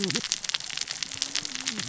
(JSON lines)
{"label": "biophony, cascading saw", "recorder": "SoundTrap 600 or HydroMoth"}